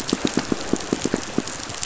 {"label": "biophony, pulse", "recorder": "SoundTrap 500"}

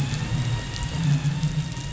{"label": "anthrophony, boat engine", "recorder": "SoundTrap 500"}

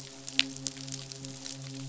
{"label": "biophony, midshipman", "recorder": "SoundTrap 500"}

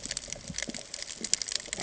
{"label": "ambient", "recorder": "HydroMoth"}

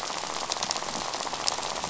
{"label": "biophony, rattle", "recorder": "SoundTrap 500"}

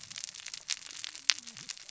{"label": "biophony, cascading saw", "recorder": "SoundTrap 600 or HydroMoth"}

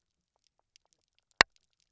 {"label": "biophony, knock croak", "recorder": "SoundTrap 300"}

